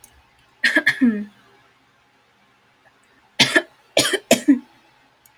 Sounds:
Cough